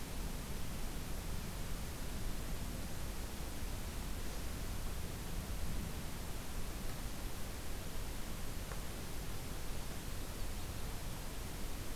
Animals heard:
forest ambience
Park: Katahdin Woods and Waters National Monument